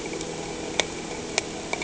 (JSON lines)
{"label": "anthrophony, boat engine", "recorder": "HydroMoth"}